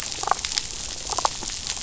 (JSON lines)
{"label": "biophony, damselfish", "recorder": "SoundTrap 500"}